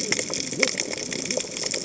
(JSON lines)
{"label": "biophony, cascading saw", "recorder": "HydroMoth"}